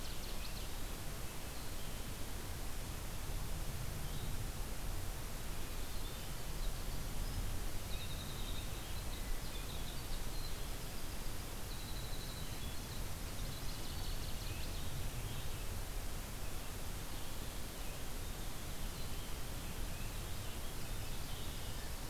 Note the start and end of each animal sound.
[0.00, 0.79] Northern Waterthrush (Parkesia noveboracensis)
[0.00, 15.77] Blue-headed Vireo (Vireo solitarius)
[5.58, 15.26] Winter Wren (Troglodytes hiemalis)
[13.02, 15.31] Northern Waterthrush (Parkesia noveboracensis)
[17.07, 21.77] Purple Finch (Haemorhous purpureus)

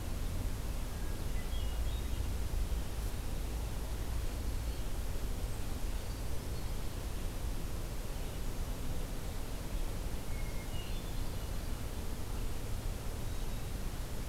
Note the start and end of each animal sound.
[0.81, 2.35] Hermit Thrush (Catharus guttatus)
[3.92, 5.15] Hermit Thrush (Catharus guttatus)
[6.12, 7.15] Hermit Thrush (Catharus guttatus)
[10.08, 11.58] Hermit Thrush (Catharus guttatus)

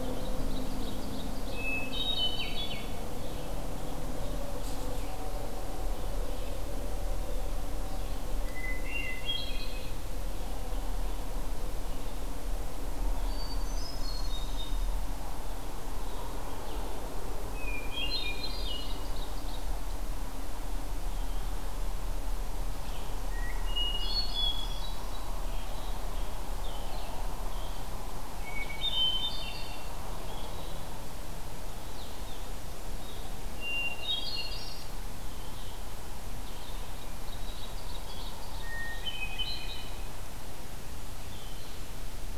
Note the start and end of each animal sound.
[0.00, 1.74] Ovenbird (Seiurus aurocapilla)
[0.00, 30.99] Blue-headed Vireo (Vireo solitarius)
[1.53, 2.97] Hermit Thrush (Catharus guttatus)
[8.38, 10.04] Hermit Thrush (Catharus guttatus)
[13.09, 14.78] Hermit Thrush (Catharus guttatus)
[17.54, 18.75] Hermit Thrush (Catharus guttatus)
[18.45, 19.65] Ovenbird (Seiurus aurocapilla)
[23.30, 25.11] Hermit Thrush (Catharus guttatus)
[28.49, 29.93] Hermit Thrush (Catharus guttatus)
[31.71, 42.00] Blue-headed Vireo (Vireo solitarius)
[33.41, 34.91] Hermit Thrush (Catharus guttatus)
[36.61, 38.67] Ovenbird (Seiurus aurocapilla)
[38.40, 40.03] Hermit Thrush (Catharus guttatus)

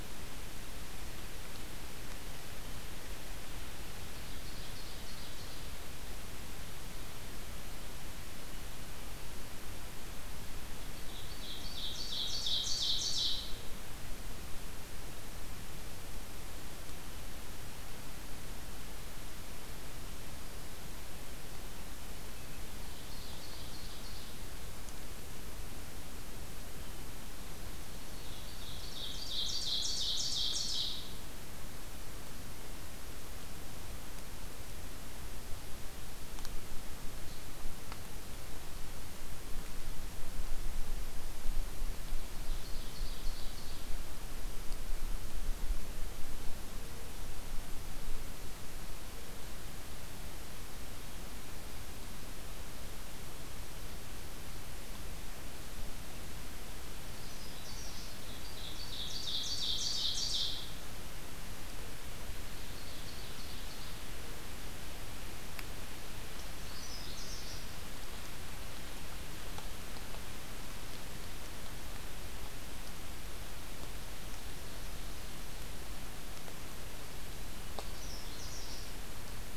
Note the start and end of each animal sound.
[4.14, 5.81] Ovenbird (Seiurus aurocapilla)
[10.78, 13.71] Ovenbird (Seiurus aurocapilla)
[22.82, 24.31] Ovenbird (Seiurus aurocapilla)
[28.32, 31.04] Ovenbird (Seiurus aurocapilla)
[41.95, 43.94] Ovenbird (Seiurus aurocapilla)
[57.17, 58.57] Canada Warbler (Cardellina canadensis)
[58.40, 60.78] Ovenbird (Seiurus aurocapilla)
[62.64, 64.10] Ovenbird (Seiurus aurocapilla)
[66.40, 67.71] Canada Warbler (Cardellina canadensis)
[77.81, 78.92] Canada Warbler (Cardellina canadensis)

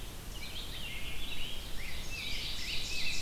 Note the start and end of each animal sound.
[0.26, 3.21] Rose-breasted Grosbeak (Pheucticus ludovicianus)
[0.43, 3.21] Red-eyed Vireo (Vireo olivaceus)
[1.96, 3.21] Ovenbird (Seiurus aurocapilla)

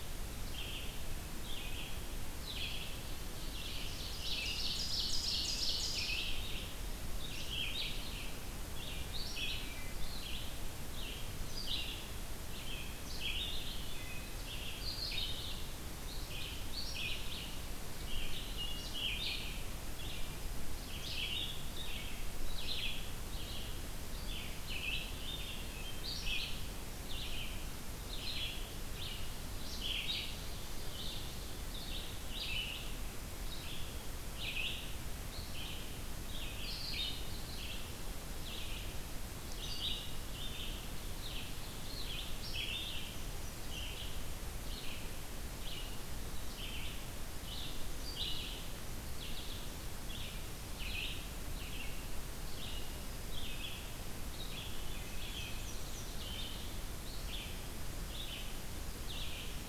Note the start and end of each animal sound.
[0.28, 59.62] Red-eyed Vireo (Vireo olivaceus)
[2.98, 6.46] Ovenbird (Seiurus aurocapilla)
[9.63, 10.13] Wood Thrush (Hylocichla mustelina)
[13.90, 14.43] Wood Thrush (Hylocichla mustelina)
[18.35, 18.92] Wood Thrush (Hylocichla mustelina)
[19.81, 21.29] Black-throated Green Warbler (Setophaga virens)
[25.57, 26.27] Wood Thrush (Hylocichla mustelina)
[41.02, 42.52] Ovenbird (Seiurus aurocapilla)
[42.81, 44.06] Black-and-white Warbler (Mniotilta varia)
[54.65, 55.26] Wood Thrush (Hylocichla mustelina)
[55.05, 56.47] Black-and-white Warbler (Mniotilta varia)

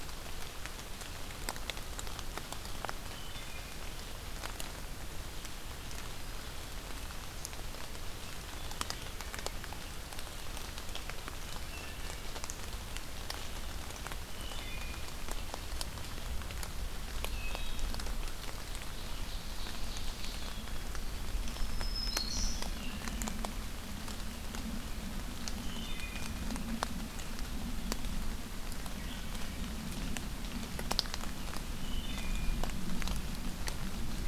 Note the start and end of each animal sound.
[2.93, 3.81] Wood Thrush (Hylocichla mustelina)
[11.65, 12.47] Wood Thrush (Hylocichla mustelina)
[14.12, 15.14] Wood Thrush (Hylocichla mustelina)
[17.19, 18.00] Wood Thrush (Hylocichla mustelina)
[18.53, 20.62] Ovenbird (Seiurus aurocapilla)
[21.17, 22.64] Black-throated Green Warbler (Setophaga virens)
[22.48, 23.36] Wood Thrush (Hylocichla mustelina)
[25.51, 26.45] Wood Thrush (Hylocichla mustelina)
[31.70, 32.62] Wood Thrush (Hylocichla mustelina)

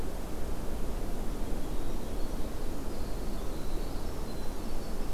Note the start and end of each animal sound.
[1.32, 5.13] Winter Wren (Troglodytes hiemalis)

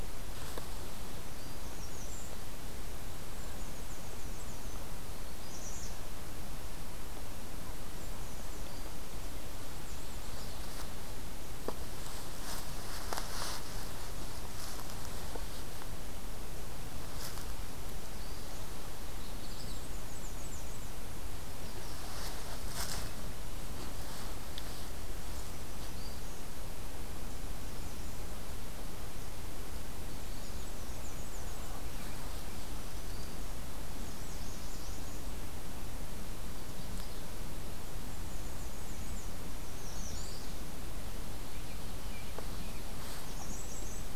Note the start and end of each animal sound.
[1.17, 2.42] American Redstart (Setophaga ruticilla)
[3.25, 4.93] Black-and-white Warbler (Mniotilta varia)
[5.30, 6.03] American Redstart (Setophaga ruticilla)
[7.71, 8.82] American Redstart (Setophaga ruticilla)
[9.30, 10.57] Black-and-white Warbler (Mniotilta varia)
[9.84, 10.85] Magnolia Warbler (Setophaga magnolia)
[17.37, 18.56] Black-throated Green Warbler (Setophaga virens)
[18.98, 19.93] Magnolia Warbler (Setophaga magnolia)
[19.36, 20.93] Black-and-white Warbler (Mniotilta varia)
[21.39, 22.38] Magnolia Warbler (Setophaga magnolia)
[24.59, 26.17] Black-and-white Warbler (Mniotilta varia)
[25.29, 26.55] Black-throated Green Warbler (Setophaga virens)
[27.44, 28.48] American Redstart (Setophaga ruticilla)
[29.88, 30.75] Magnolia Warbler (Setophaga magnolia)
[30.20, 31.77] Black-and-white Warbler (Mniotilta varia)
[32.31, 33.61] Black-throated Green Warbler (Setophaga virens)
[33.83, 35.32] American Redstart (Setophaga ruticilla)
[36.18, 37.24] Magnolia Warbler (Setophaga magnolia)
[37.84, 39.39] Black-and-white Warbler (Mniotilta varia)
[39.47, 40.50] American Redstart (Setophaga ruticilla)
[39.79, 40.52] Magnolia Warbler (Setophaga magnolia)
[43.07, 44.16] Black-and-white Warbler (Mniotilta varia)

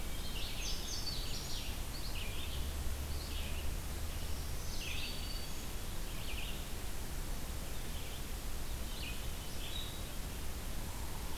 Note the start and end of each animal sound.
[0.00, 0.58] Hermit Thrush (Catharus guttatus)
[0.00, 11.38] Red-eyed Vireo (Vireo olivaceus)
[0.29, 1.65] Indigo Bunting (Passerina cyanea)
[4.12, 5.79] Black-throated Green Warbler (Setophaga virens)
[8.86, 10.28] Hermit Thrush (Catharus guttatus)

